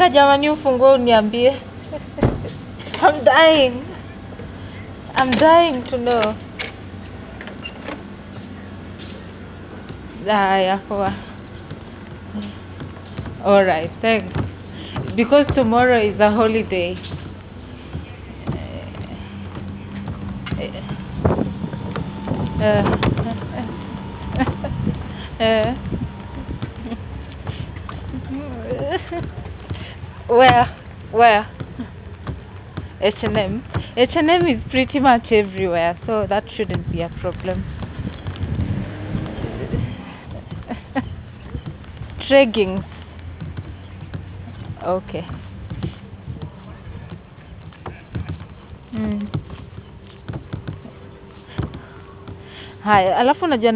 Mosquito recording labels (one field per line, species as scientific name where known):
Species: no mosquito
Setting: insect culture